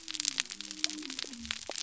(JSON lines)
{"label": "biophony", "recorder": "SoundTrap 300"}